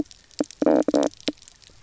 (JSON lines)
{"label": "biophony, knock croak", "recorder": "SoundTrap 300"}